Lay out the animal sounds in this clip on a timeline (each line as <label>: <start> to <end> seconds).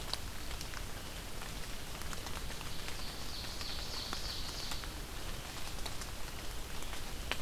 Ovenbird (Seiurus aurocapilla): 2.7 to 4.9 seconds